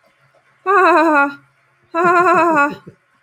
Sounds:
Laughter